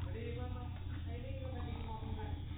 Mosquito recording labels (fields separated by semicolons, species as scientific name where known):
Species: mosquito; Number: one; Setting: cup